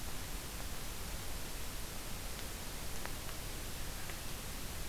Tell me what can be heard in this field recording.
forest ambience